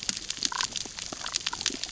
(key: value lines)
label: biophony, damselfish
recorder: SoundTrap 600 or HydroMoth